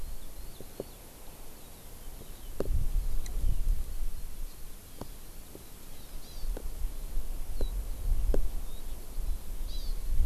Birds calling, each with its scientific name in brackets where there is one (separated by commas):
Hawaii Amakihi (Chlorodrepanis virens), Eurasian Skylark (Alauda arvensis)